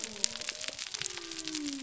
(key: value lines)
label: biophony
recorder: SoundTrap 300